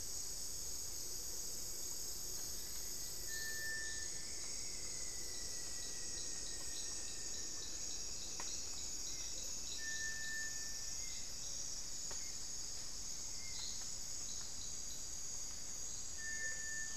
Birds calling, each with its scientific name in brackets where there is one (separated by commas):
Rufous-fronted Antthrush (Formicarius rufifrons), Spot-winged Antshrike (Pygiptila stellaris)